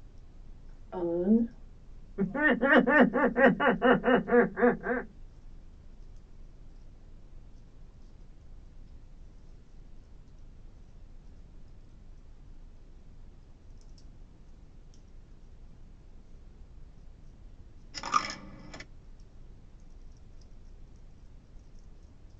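A faint continuous noise runs in the background. At the start, a voice says "On." After that, about 2 seconds in, laughter can be heard. Later, at about 18 seconds, a coin drops.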